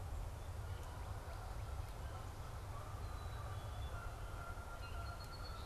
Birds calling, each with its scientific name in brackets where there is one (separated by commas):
Black-capped Chickadee (Poecile atricapillus), Song Sparrow (Melospiza melodia), Canada Goose (Branta canadensis)